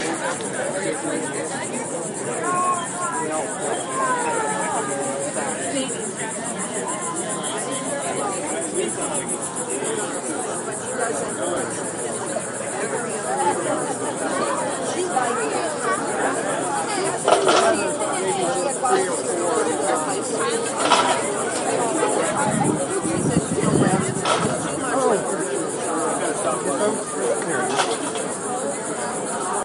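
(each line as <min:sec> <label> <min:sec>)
0:00.0 Background lively chatter of a small group with indistinct speech. 0:29.6
0:00.0 Continuous nighttime chorus of crickets and other insects. 0:29.6
0:17.4 Clattering of a metal item hitting the paved ground. 0:18.1
0:20.8 Clattering of a metal item hitting the paved ground. 0:21.4
0:24.2 Clattering of a metal item hitting the paved ground. 0:24.7
0:27.9 Clattering of a metal item hitting the paved ground. 0:28.3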